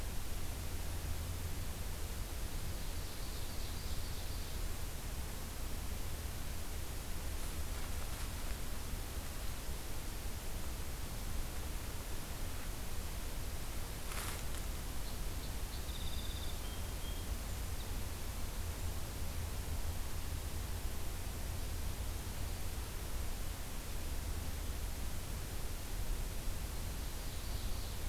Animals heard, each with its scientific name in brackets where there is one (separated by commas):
Song Sparrow (Melospiza melodia), Ovenbird (Seiurus aurocapilla)